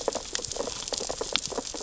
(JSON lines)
{"label": "biophony, sea urchins (Echinidae)", "recorder": "SoundTrap 600 or HydroMoth"}